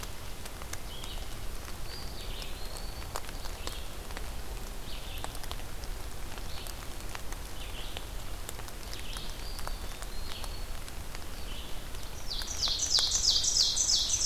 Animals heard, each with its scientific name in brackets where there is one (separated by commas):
Black-throated Green Warbler (Setophaga virens), Eastern Wood-Pewee (Contopus virens), Red-eyed Vireo (Vireo olivaceus), Ovenbird (Seiurus aurocapilla)